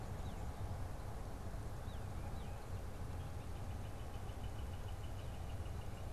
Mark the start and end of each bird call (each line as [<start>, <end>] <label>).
[0.10, 2.80] Tufted Titmouse (Baeolophus bicolor)
[3.00, 6.12] Northern Flicker (Colaptes auratus)